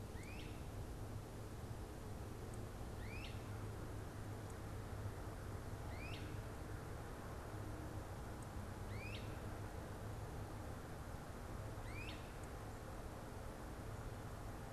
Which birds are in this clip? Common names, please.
Great Crested Flycatcher